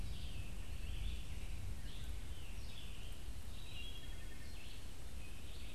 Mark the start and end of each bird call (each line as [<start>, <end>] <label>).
[0.00, 5.75] Red-eyed Vireo (Vireo olivaceus)
[3.21, 4.71] Wood Thrush (Hylocichla mustelina)